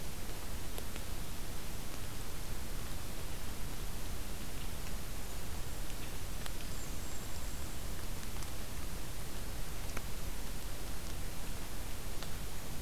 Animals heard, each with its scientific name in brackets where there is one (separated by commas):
Golden-crowned Kinglet (Regulus satrapa)